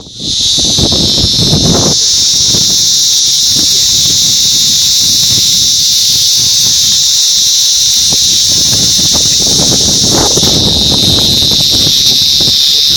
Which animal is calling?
Psaltoda plaga, a cicada